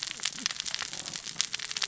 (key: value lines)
label: biophony, cascading saw
recorder: SoundTrap 600 or HydroMoth